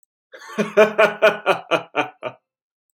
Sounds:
Laughter